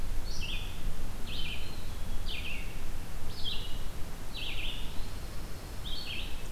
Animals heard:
Eastern Wood-Pewee (Contopus virens)
Red-eyed Vireo (Vireo olivaceus)

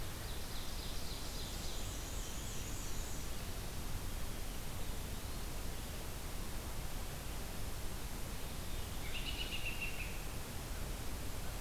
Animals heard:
Eastern Wood-Pewee (Contopus virens)
Black-and-white Warbler (Mniotilta varia)
American Robin (Turdus migratorius)
Ovenbird (Seiurus aurocapilla)
Veery (Catharus fuscescens)

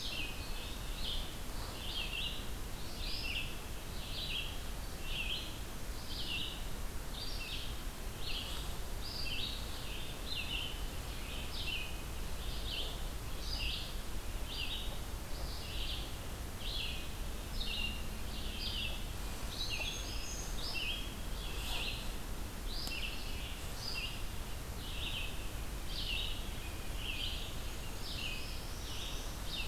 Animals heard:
Black-throated Green Warbler (Setophaga virens)
Red-eyed Vireo (Vireo olivaceus)
Northern Parula (Setophaga americana)
Golden-crowned Kinglet (Regulus satrapa)

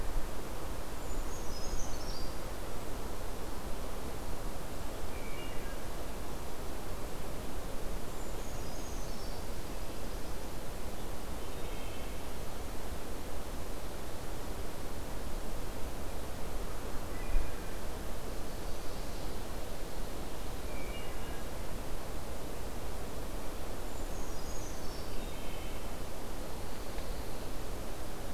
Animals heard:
Brown Creeper (Certhia americana)
Wood Thrush (Hylocichla mustelina)

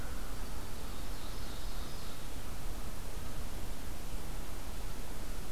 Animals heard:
American Crow (Corvus brachyrhynchos)
Ovenbird (Seiurus aurocapilla)

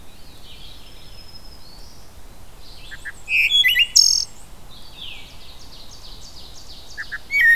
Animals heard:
Wood Thrush (Hylocichla mustelina)
Red-eyed Vireo (Vireo olivaceus)
Black-and-white Warbler (Mniotilta varia)
Veery (Catharus fuscescens)
Black-throated Green Warbler (Setophaga virens)
Ovenbird (Seiurus aurocapilla)

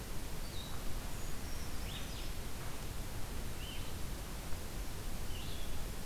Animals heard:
Brown Creeper (Certhia americana)
Blue-headed Vireo (Vireo solitarius)

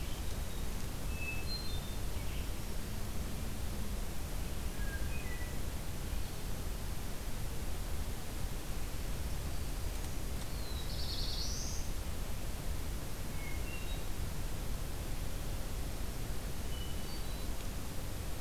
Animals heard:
Black-throated Blue Warbler (Setophaga caerulescens)
Hermit Thrush (Catharus guttatus)

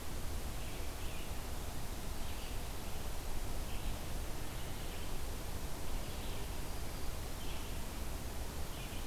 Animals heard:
Red-eyed Vireo (Vireo olivaceus)

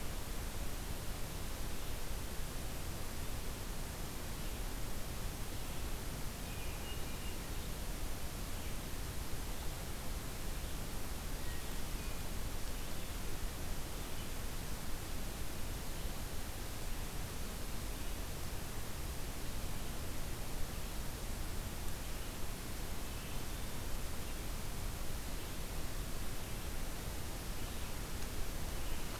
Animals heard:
Hermit Thrush (Catharus guttatus)
Red-eyed Vireo (Vireo olivaceus)

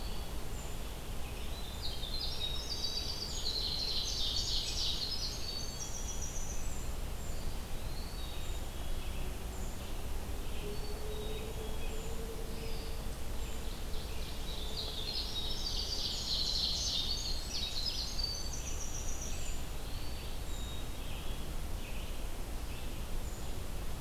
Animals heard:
Ovenbird (Seiurus aurocapilla)
Eastern Wood-Pewee (Contopus virens)
Red-eyed Vireo (Vireo olivaceus)
Black-capped Chickadee (Poecile atricapillus)
Winter Wren (Troglodytes hiemalis)

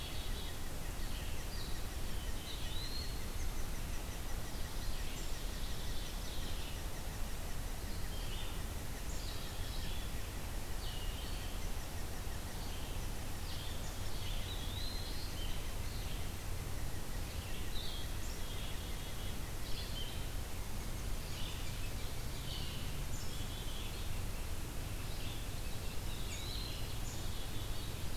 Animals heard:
Eastern Wood-Pewee (Contopus virens)
Red-eyed Vireo (Vireo olivaceus)
Black-capped Chickadee (Poecile atricapillus)
unidentified call

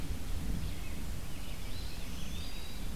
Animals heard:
Black-throated Green Warbler (Setophaga virens)
Eastern Wood-Pewee (Contopus virens)

